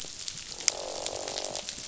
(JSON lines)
{"label": "biophony, croak", "recorder": "SoundTrap 500"}